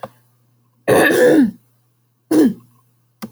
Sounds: Throat clearing